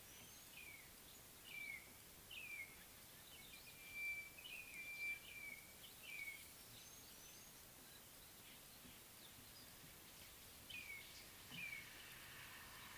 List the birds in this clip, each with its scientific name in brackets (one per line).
Sulphur-breasted Bushshrike (Telophorus sulfureopectus)
Spotted Morning-Thrush (Cichladusa guttata)